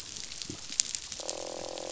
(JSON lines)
{"label": "biophony, croak", "recorder": "SoundTrap 500"}